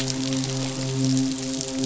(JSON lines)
{"label": "biophony, midshipman", "recorder": "SoundTrap 500"}